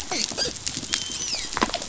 {"label": "biophony, dolphin", "recorder": "SoundTrap 500"}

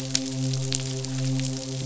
{"label": "biophony, midshipman", "recorder": "SoundTrap 500"}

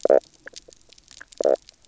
{"label": "biophony, knock croak", "recorder": "SoundTrap 300"}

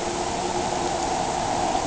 {"label": "anthrophony, boat engine", "recorder": "HydroMoth"}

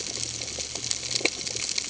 {"label": "ambient", "recorder": "HydroMoth"}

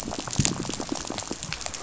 {"label": "biophony, rattle", "recorder": "SoundTrap 500"}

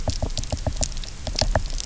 {"label": "biophony, knock", "recorder": "SoundTrap 300"}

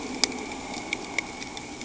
{"label": "anthrophony, boat engine", "recorder": "HydroMoth"}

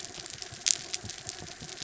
{"label": "anthrophony, mechanical", "recorder": "SoundTrap 300"}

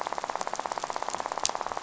{"label": "biophony, rattle", "recorder": "SoundTrap 500"}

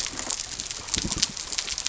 {"label": "biophony", "recorder": "SoundTrap 300"}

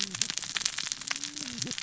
{"label": "biophony, cascading saw", "recorder": "SoundTrap 600 or HydroMoth"}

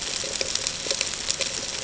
{"label": "ambient", "recorder": "HydroMoth"}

